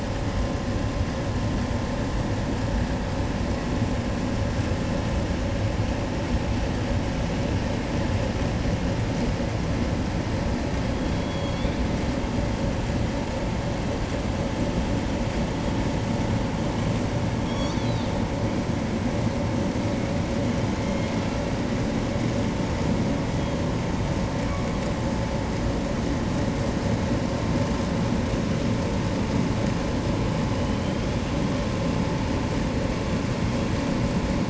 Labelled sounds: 10.6	12.1	killer whale, southern resident, J pod, call S01, 1.9 to 5.3 kHz
17.3	18.2	killer whale, southern resident, J pod, call S01, 2.3 to 8.0 kHz
20.3	21.6	killer whale, southern resident, J pod, call S01, 1.1 to 4.8 kHz
23.2	24.3	killer whale, 2.2 to 3.8 kHz
30.2	31.5	killer whale, 2.2 to 4.5 kHz

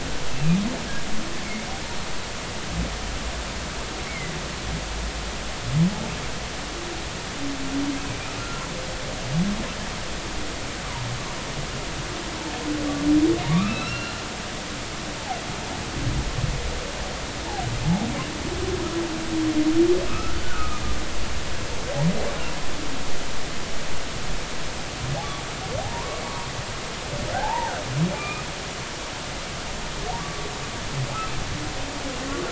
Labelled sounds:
4.1	4.3	humpback whale, 1.9 to 2.3 kHz
13.5	14.1	humpback whale, 1.1 to 2.9 kHz
20.1	20.8	humpback whale, 1.1 to 1.5 kHz
25.8	26.2	humpback whale, 0.80 to 1.2 kHz
27.3	27.7	humpback whale, 0.80 to 1.0 kHz
28.1	28.4	humpback whale, 1.2 to 2.6 kHz
30.2	30.5	humpback whale, 1.1 to 1.2 kHz

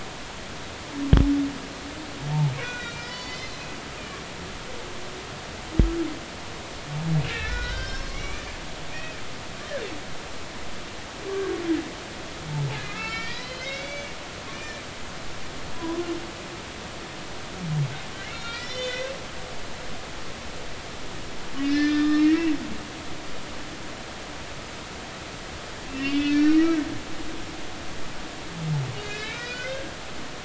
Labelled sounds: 2.6	3.6	humpback whale, 1.3 to 7.1 kHz
7.3	8.5	humpback whale, 1.2 to 6.0 kHz
8.9	9.2	humpback whale, 2.4 to 2.6 kHz
12.8	14.1	humpback whale, 1.2 to 5.6 kHz
14.5	14.8	humpback whale, 2.3 to 2.5 kHz
15.7	16.1	humpback whale, 0.93 to 1.1 kHz
18.2	19.0	humpback whale, 1.9 to 6.2 kHz
19.4	19.8	humpback whale, 4.6 to 5.1 kHz
21.6	22.5	humpback whale, 1.2 to 5.7 kHz
25.9	26.9	humpback whale, 1.2 to 5.3 kHz
29.0	29.9	humpback whale, 1.4 to 4.1 kHz

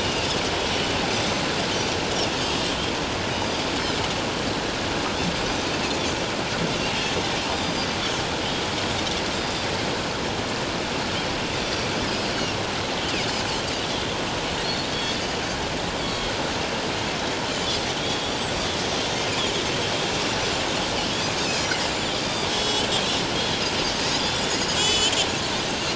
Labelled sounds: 0.0	0.3	Pacific white-sided dolphin, 2.6 to 2.9 kHz
3.3	3.7	Pacific white-sided dolphin, 4.7 to 5.1 kHz
7.5	7.9	Pacific white-sided dolphin, 4.6 to 4.9 kHz
9.4	9.7	Pacific white-sided dolphin, 4.6 to 4.9 kHz
11.5	11.9	Pacific white-sided dolphin, 4.5 to 6.0 kHz
13.9	15.2	Pacific white-sided dolphin, 3.3 to 4.5 kHz
18.0	18.5	Pacific white-sided dolphin, 3.2 to 7.9 kHz
21.9	22.9	Pacific white-sided dolphin, 2.9 to 7.9 kHz
23.3	23.6	Pacific white-sided dolphin, 3.2 to 3.4 kHz
24.2	25.2	Pacific white-sided dolphin, 2.4 to 7.5 kHz

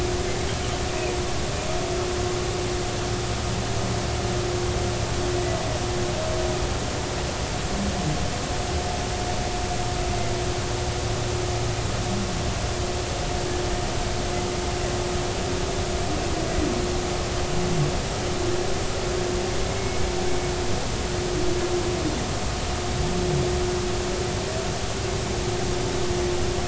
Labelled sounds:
19.7	20.1	humpback whale, 2.1 to 2.3 kHz

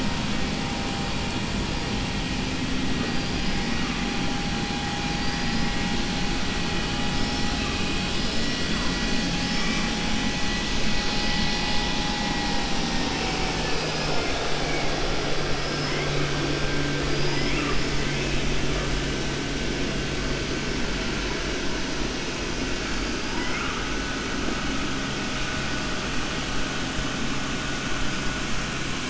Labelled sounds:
5.1	5.7	killer whale, 4.1 to 5.8 kHz
17.1	17.6	killer whale, 4.8 to 5.5 kHz
23.3	23.8	killer whale, 0.88 to 3.0 kHz

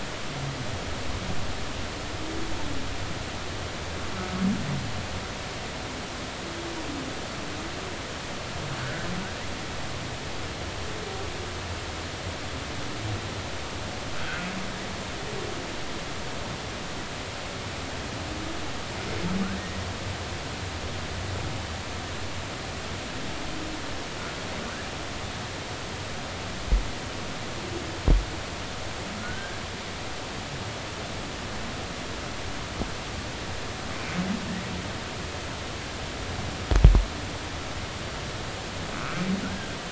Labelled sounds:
8.8	9.1	humpback whale, 1.4 to 1.7 kHz
14.2	14.5	humpback whale, 1.3 to 1.6 kHz
29.2	29.6	humpback whale, 1.4 to 1.7 kHz
39.4	39.8	humpback whale, 1.3 to 1.7 kHz

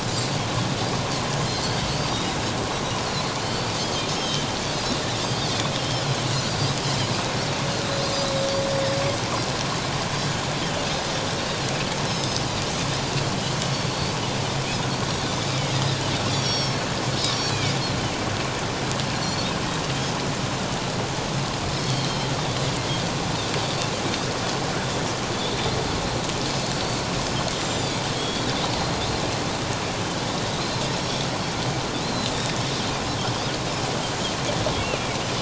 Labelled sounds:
3.4	4.5	Pacific white-sided dolphin, 3.1 to 5.4 kHz
5.2	6.0	Pacific white-sided dolphin, 3.0 to 5.5 kHz
6.8	7.1	Pacific white-sided dolphin, 3.9 to 4.2 kHz
12.1	12.4	Pacific white-sided dolphin, 4.9 to 7.8 kHz
13.9	14.1	Pacific white-sided dolphin, 4.2 to 4.6 kHz
15.5	16.9	Pacific white-sided dolphin, 2.1 to 5.9 kHz
17.3	17.7	Pacific white-sided dolphin, 2.2 to 4.6 kHz
19.2	19.5	Pacific white-sided dolphin, 4.2 to 4.5 kHz
21.8	22.3	Pacific white-sided dolphin, 2.9 to 4.5 kHz
26.7	29.0	Pacific white-sided dolphin, 3.2 to 7.5 kHz
32.0	32.5	Pacific white-sided dolphin, 3.9 to 7.2 kHz

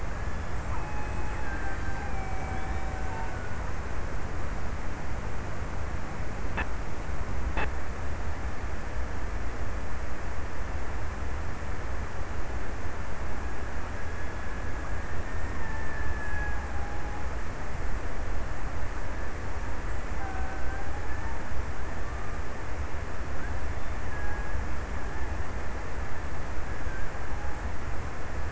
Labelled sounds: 0.3	3.8	killer whale, Bigg's (transient), 0.54 to 2.8 kHz
14.8	17.9	killer whale, Bigg's (transient), 0.69 to 2.0 kHz
19.5	22.5	killer whale, Bigg's (transient), 0.54 to 2.3 kHz
23.8	25.3	killer whale, Bigg's (transient), 0.73 to 2.1 kHz

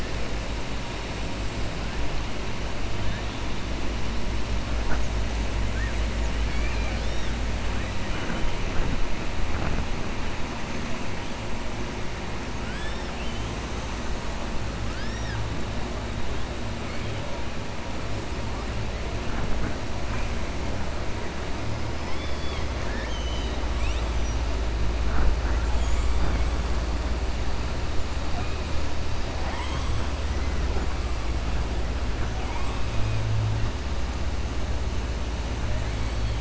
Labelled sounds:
6.4	7.3	killer whale, southern resident, 1.5 to 5.7 kHz
12.6	13.5	killer whale, southern resident, 1.4 to 5.5 kHz
22.0	23.6	killer whale, southern resident, 1.6 to 5.7 kHz
29.3	29.9	killer whale, southern resident, 0.65 to 4.2 kHz

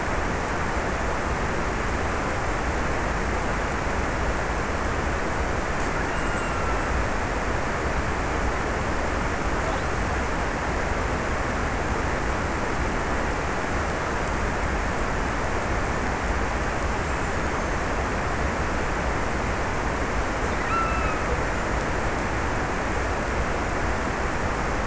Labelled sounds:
5.7	7.2	killer whale, offshore, 1.9 to 3.0 kHz
20.5	21.5	killer whale, offshore, 0.76 to 2.9 kHz

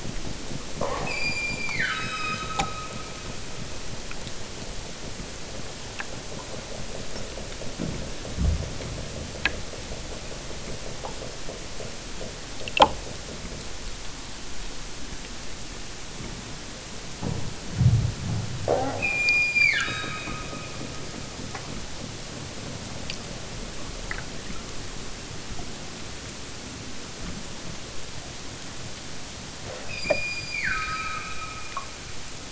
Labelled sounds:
1.0	3.5	killer whale, southern Alaska resident, 0.78 to 8.0 kHz
18.9	20.7	killer whale, southern Alaska resident, 0.92 to 8.0 kHz
29.9	31.9	killer whale, southern Alaska resident, 0.73 to 7.8 kHz

